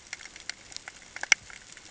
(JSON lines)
{"label": "ambient", "recorder": "HydroMoth"}